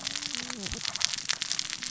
{"label": "biophony, cascading saw", "recorder": "SoundTrap 600 or HydroMoth"}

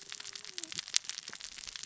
{"label": "biophony, cascading saw", "recorder": "SoundTrap 600 or HydroMoth"}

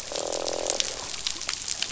{"label": "biophony, croak", "recorder": "SoundTrap 500"}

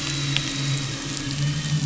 {"label": "anthrophony, boat engine", "recorder": "SoundTrap 500"}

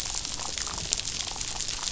{"label": "biophony, damselfish", "recorder": "SoundTrap 500"}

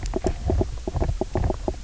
{"label": "biophony, knock croak", "recorder": "SoundTrap 300"}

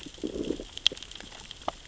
{"label": "biophony, growl", "recorder": "SoundTrap 600 or HydroMoth"}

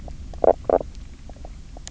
{"label": "biophony, knock croak", "recorder": "SoundTrap 300"}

